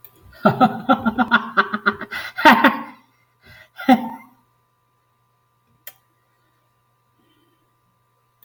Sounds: Laughter